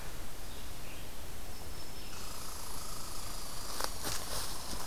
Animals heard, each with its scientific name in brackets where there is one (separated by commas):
Black-throated Green Warbler (Setophaga virens), Red-eyed Vireo (Vireo olivaceus), Red Squirrel (Tamiasciurus hudsonicus)